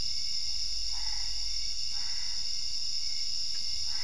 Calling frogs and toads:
Boana albopunctata
Brazil, 12:30am

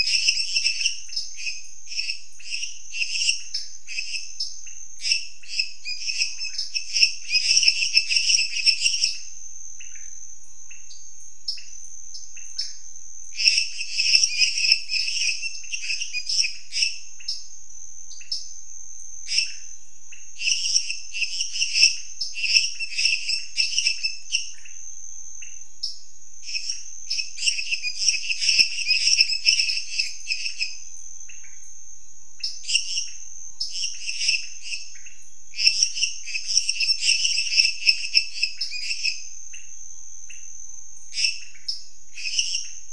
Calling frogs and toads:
lesser tree frog (Dendropsophus minutus), pointedbelly frog (Leptodactylus podicipinus), dwarf tree frog (Dendropsophus nanus)
Brazil, 9:15pm

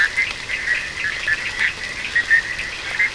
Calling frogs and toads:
Bischoff's tree frog (Boana bischoffi), Cochran's lime tree frog (Sphaenorhynchus surdus)
Brazil, 3:15am

